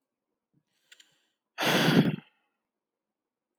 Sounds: Sigh